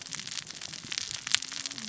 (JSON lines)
{"label": "biophony, cascading saw", "recorder": "SoundTrap 600 or HydroMoth"}